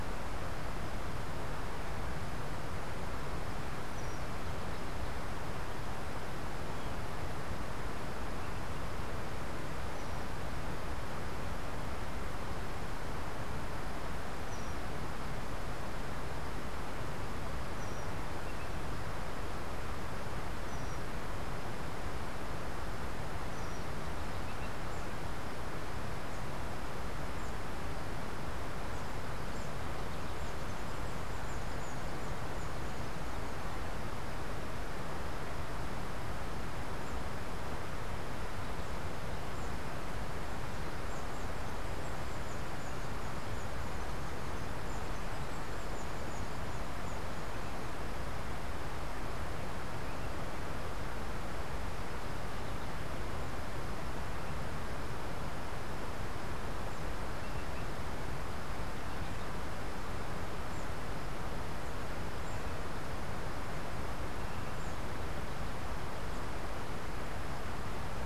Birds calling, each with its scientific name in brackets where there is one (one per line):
unidentified bird